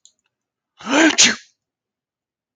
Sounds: Sneeze